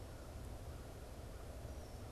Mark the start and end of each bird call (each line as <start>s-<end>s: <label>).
0.0s-2.1s: American Crow (Corvus brachyrhynchos)